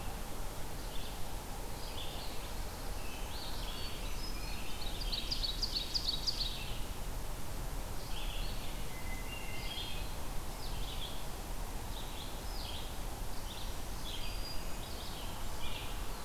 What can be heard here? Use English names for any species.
Red-eyed Vireo, Black-throated Blue Warbler, Hermit Thrush, Ovenbird, Black-throated Green Warbler